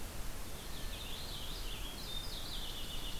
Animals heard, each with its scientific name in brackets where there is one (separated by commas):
Purple Finch (Haemorhous purpureus)